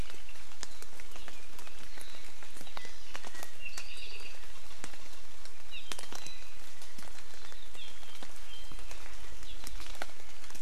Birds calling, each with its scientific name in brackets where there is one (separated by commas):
Apapane (Himatione sanguinea)